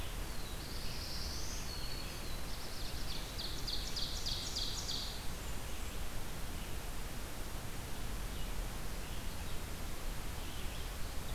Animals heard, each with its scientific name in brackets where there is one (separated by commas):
Black-throated Green Warbler (Setophaga virens), Black-throated Blue Warbler (Setophaga caerulescens), Blackburnian Warbler (Setophaga fusca), Red-eyed Vireo (Vireo olivaceus), Ovenbird (Seiurus aurocapilla)